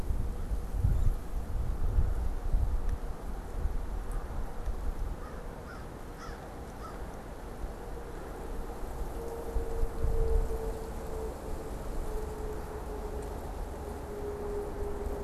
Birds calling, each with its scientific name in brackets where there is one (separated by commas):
American Crow (Corvus brachyrhynchos)